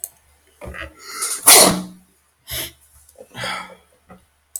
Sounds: Sneeze